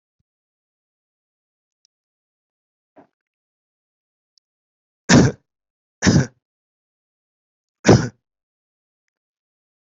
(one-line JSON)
{"expert_labels": [{"quality": "good", "cough_type": "dry", "dyspnea": false, "wheezing": false, "stridor": false, "choking": false, "congestion": false, "nothing": true, "diagnosis": "healthy cough", "severity": "pseudocough/healthy cough"}], "age": 58, "gender": "male", "respiratory_condition": false, "fever_muscle_pain": true, "status": "symptomatic"}